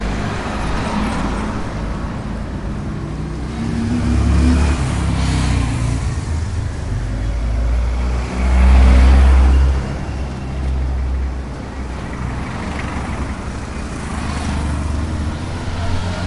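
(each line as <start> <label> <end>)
0.0 A car passes by in an urban outdoor setting. 2.3
2.2 A motorbike with a low-pitched engine tone passes by. 7.1
7.0 A van passes by with a deep engine hum and moderate vibration. 11.8
11.7 A car passes by in an urban outdoor setting. 13.9
13.8 A vehicle passes by with an indistinct engine sound. 16.3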